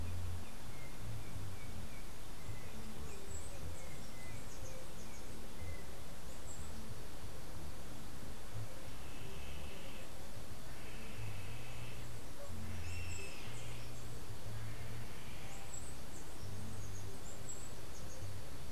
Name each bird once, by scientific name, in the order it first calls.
Icterus chrysater, Uranomitra franciae, Milvago chimachima